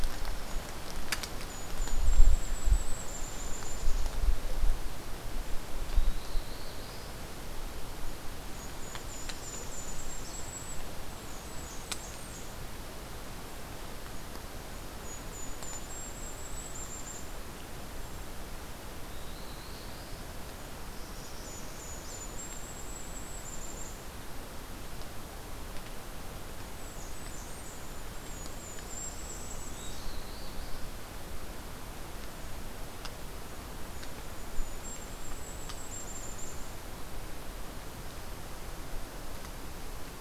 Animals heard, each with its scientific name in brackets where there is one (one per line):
Golden-crowned Kinglet (Regulus satrapa)
Northern Parula (Setophaga americana)
Black-throated Blue Warbler (Setophaga caerulescens)
Blackburnian Warbler (Setophaga fusca)